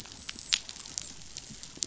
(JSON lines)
{"label": "biophony, dolphin", "recorder": "SoundTrap 500"}